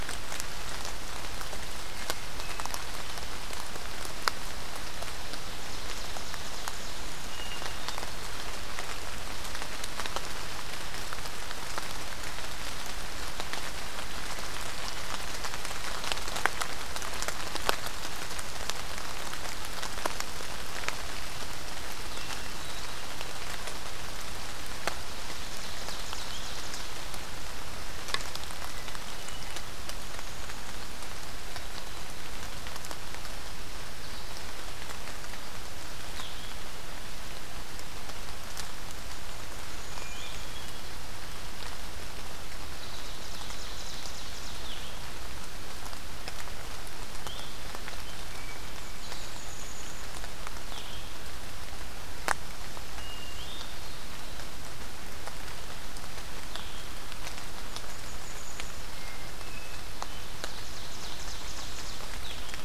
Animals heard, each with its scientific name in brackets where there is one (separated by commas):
Hermit Thrush (Catharus guttatus), Ovenbird (Seiurus aurocapilla), Golden-crowned Kinglet (Regulus satrapa), Blue-headed Vireo (Vireo solitarius)